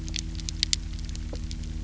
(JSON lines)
{"label": "anthrophony, boat engine", "recorder": "SoundTrap 300"}